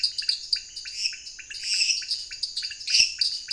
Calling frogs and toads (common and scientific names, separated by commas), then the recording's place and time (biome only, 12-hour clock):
lesser tree frog (Dendropsophus minutus), dwarf tree frog (Dendropsophus nanus), pointedbelly frog (Leptodactylus podicipinus)
Cerrado, 8:15pm